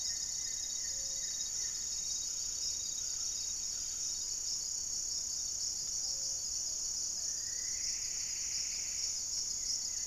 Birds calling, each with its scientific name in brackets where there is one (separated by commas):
Plumbeous Antbird (Myrmelastes hyperythrus), Buff-breasted Wren (Cantorchilus leucotis), Goeldi's Antbird (Akletos goeldii), Plumbeous Pigeon (Patagioenas plumbea), Gray-fronted Dove (Leptotila rufaxilla)